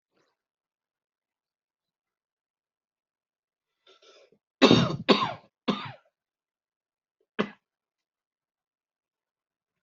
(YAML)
expert_labels:
- quality: good
  cough_type: dry
  dyspnea: false
  wheezing: false
  stridor: false
  choking: false
  congestion: false
  nothing: true
  diagnosis: upper respiratory tract infection
  severity: mild
age: 45
gender: female
respiratory_condition: false
fever_muscle_pain: false
status: COVID-19